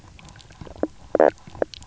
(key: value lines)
label: biophony, knock croak
recorder: SoundTrap 300